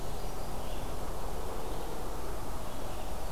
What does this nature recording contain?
Brown Creeper, Red-eyed Vireo